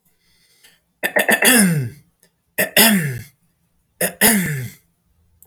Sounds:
Throat clearing